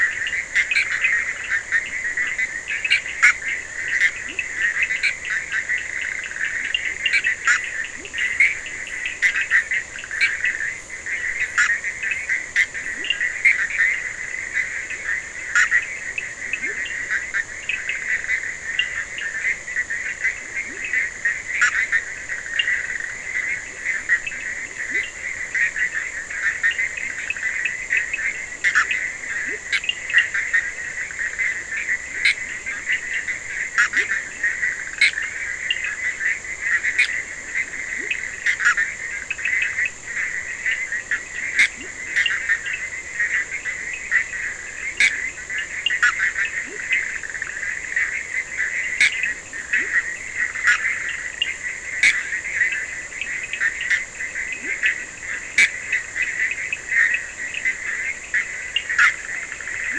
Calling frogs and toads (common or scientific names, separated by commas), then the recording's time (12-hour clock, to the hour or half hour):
Bischoff's tree frog, Cochran's lime tree frog, Leptodactylus latrans
4am